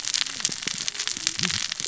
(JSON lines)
{"label": "biophony, cascading saw", "recorder": "SoundTrap 600 or HydroMoth"}